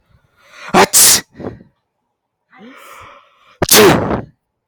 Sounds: Sneeze